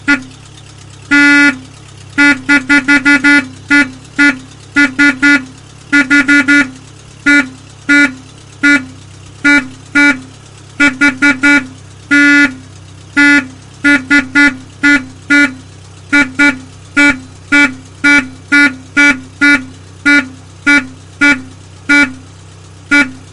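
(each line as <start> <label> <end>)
0.0 A car horn beeps shortly once. 0.3
0.3 A car engine is running low and steady. 1.1
1.1 A car horn beeps sharply and repeatedly with short pauses. 23.3
1.1 An engine is running in the background. 23.3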